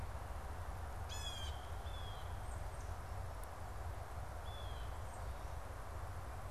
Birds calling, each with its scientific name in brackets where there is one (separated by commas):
unidentified bird, Blue Jay (Cyanocitta cristata)